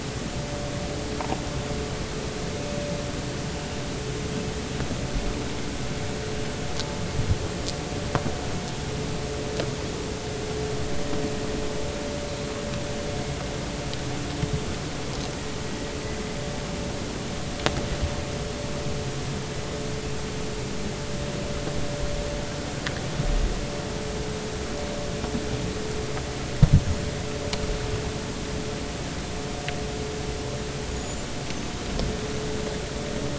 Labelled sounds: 30.9	31.3	small unidentified odontocete, 6.7 to 7.3 kHz

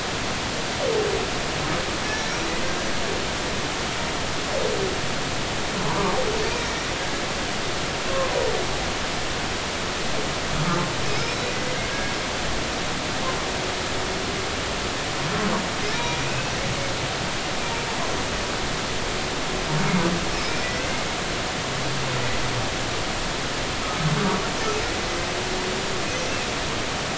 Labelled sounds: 2.0	2.3	humpback whale, 5.6 to 5.8 kHz
5.8	6.2	humpback whale, 0.83 to 1.2 kHz
8.1	8.3	humpback whale, 0.99 to 1.1 kHz
11.1	12.1	humpback whale, 1.6 to 5.4 kHz
16.2	16.5	humpback whale, 2.4 to 2.7 kHz
20.4	20.7	humpback whale, 2.2 to 5.4 kHz

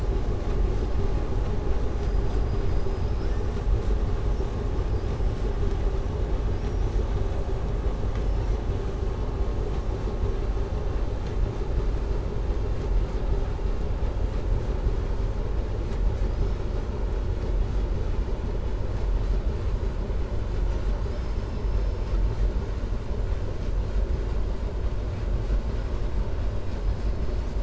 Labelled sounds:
1.9	3.4	killer whale, southern resident, 4.3 to 5.9 kHz

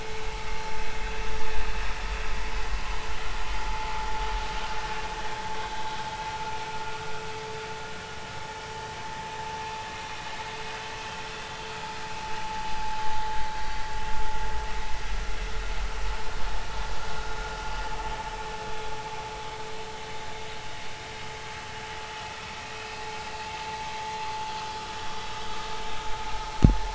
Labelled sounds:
3.7	3.9	vessel noise, 0.83 to 0.93 kHz
22.8	23.0	vessel noise, 2.5 to 2.7 kHz

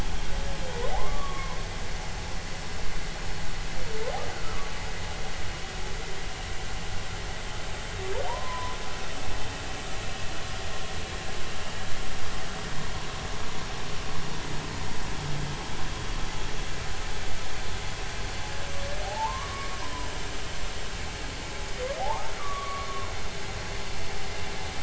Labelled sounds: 0.9	1.6	humpback whale, 0.80 to 1.2 kHz
4.3	4.7	humpback whale, 1.1 to 1.5 kHz
8.3	8.7	humpback whale, 0.86 to 1.1 kHz
19.0	19.8	humpback whale, 0.80 to 1.2 kHz
22.0	23.1	humpback whale, 0.80 to 1.3 kHz

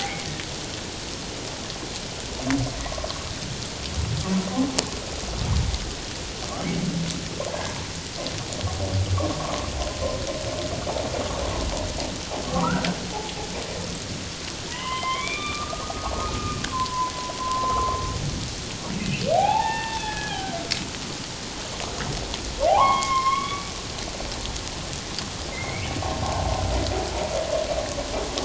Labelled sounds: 0.0	0.3	humpback whale, 1.9 to 2.4 kHz
7.5	7.8	humpback whale, 1.6 to 1.7 kHz
9.4	9.7	humpback whale, 1.0 to 1.2 kHz
12.5	12.9	humpback whale, 0.91 to 1.6 kHz
14.7	17.1	humpback whale, 0.91 to 3.6 kHz
17.4	18.0	humpback whale, 0.97 to 1.2 kHz
19.3	20.5	humpback whale, 0.78 to 3.7 kHz
22.7	23.7	humpback whale, 0.78 to 5.4 kHz
25.5	25.9	humpback whale, 2.0 to 2.4 kHz

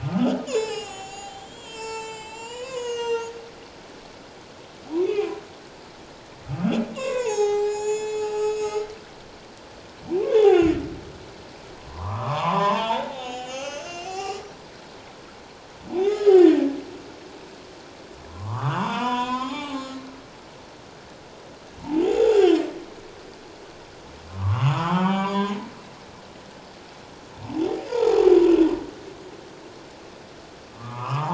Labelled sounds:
0.0	3.4	humpback whale, 0.78 to 7.7 kHz
4.9	5.4	humpback whale, 0.94 to 2.7 kHz
6.9	8.9	humpback whale, 0.78 to 7.8 kHz
10.4	10.6	humpback whale, 0.78 to 0.91 kHz
11.8	14.6	humpback whale, 0.78 to 7.6 kHz
15.9	16.6	humpback whale, 0.78 to 7.0 kHz
18.3	20.0	humpback whale, 0.78 to 7.1 kHz
22.0	22.6	humpback whale, 0.78 to 7.0 kHz
24.4	25.6	humpback whale, 0.78 to 3.6 kHz
28.0	28.3	humpback whale, 6.7 to 6.9 kHz

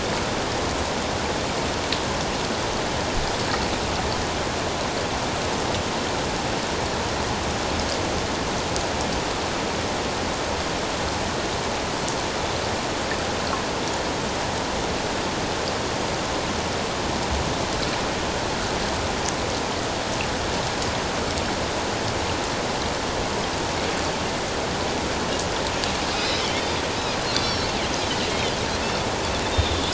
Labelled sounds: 26.2	26.4	Pacific white-sided dolphin, 5.0 to 5.2 kHz
27.3	27.7	Pacific white-sided dolphin, 3.2 to 4.7 kHz
28.3	28.6	Pacific white-sided dolphin, 3.0 to 3.3 kHz
29.4	29.9	Pacific white-sided dolphin, 3.4 to 3.8 kHz

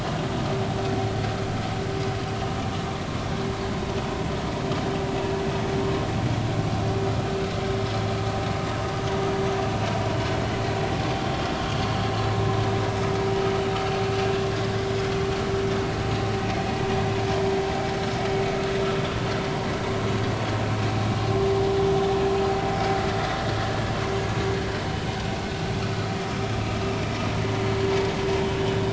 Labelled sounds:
11.1	11.4	vessel noise, 3.1 to 3.2 kHz

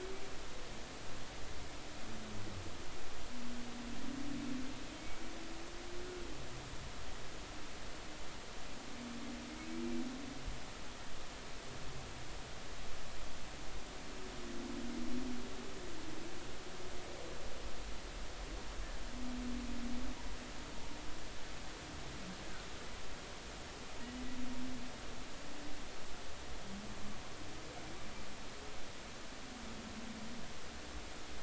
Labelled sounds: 5.0	5.2	humpback whale, 2.2 to 2.3 kHz

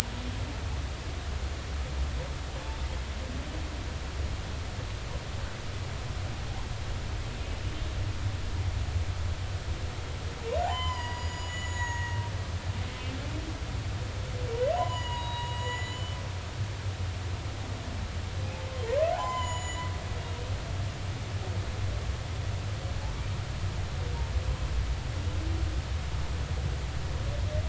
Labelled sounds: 10.6	12.2	humpback whale, 0.80 to 7.4 kHz
14.7	16.2	humpback whale, 0.80 to 7.1 kHz
19.1	19.9	humpback whale, 0.80 to 7.2 kHz

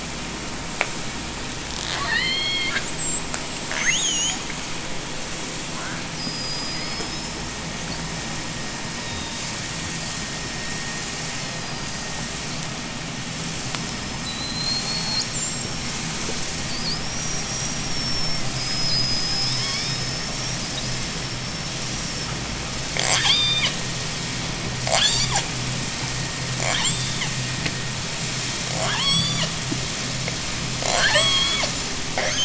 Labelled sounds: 1.5	5.1	killer whale, J pod, 0.32 to 8.0 kHz
6.1	12.3	killer whale, J pod, 3.5 to 5.8 kHz
13.9	22.4	killer whale, J pod, 0.55 to 8.0 kHz
22.8	23.8	killer whale, J pod, 0.27 to 8.0 kHz
24.6	25.6	killer whale, J pod, 0.39 to 8.0 kHz
26.4	27.5	killer whale, J pod, 0.44 to 8.0 kHz
28.6	29.7	killer whale, J pod, 0.32 to 8.0 kHz
30.6	32.4	killer whale, J pod, 0.24 to 8.0 kHz

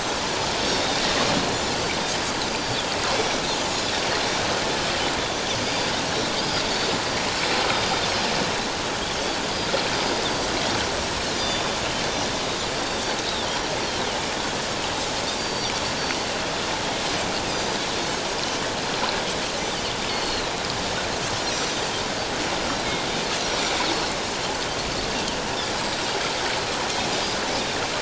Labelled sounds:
0.6	1.6	Pacific white-sided dolphin, 3.5 to 5.7 kHz
2.5	2.8	Pacific white-sided dolphin, 4.5 to 7.3 kHz
3.2	3.6	Pacific white-sided dolphin, 3.5 to 5.8 kHz
5.6	6.6	Pacific white-sided dolphin, 4.7 to 5.1 kHz
7.7	8.0	Pacific white-sided dolphin, 4.8 to 4.9 kHz
11.4	11.7	Pacific white-sided dolphin, 3.5 to 4.9 kHz
12.9	13.7	Pacific white-sided dolphin, 3.3 to 5.8 kHz
15.4	15.7	Pacific white-sided dolphin, 4.5 to 4.8 kHz
17.4	17.8	Pacific white-sided dolphin, 4.7 to 6.2 kHz
20.1	20.6	Pacific white-sided dolphin, 3.8 to 4.5 kHz
21.4	21.9	Pacific white-sided dolphin, 5.6 to 6.3 kHz
23.4	23.7	Pacific white-sided dolphin, 5.6 to 5.8 kHz

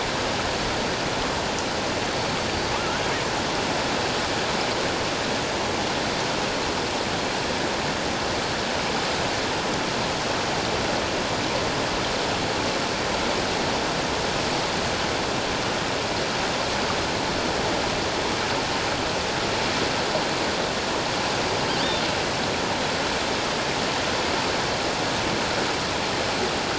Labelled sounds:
2.5	3.0	killer whale, offshore, 1.1 to 4.8 kHz

